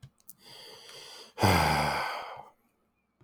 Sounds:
Sigh